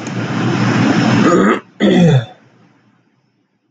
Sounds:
Throat clearing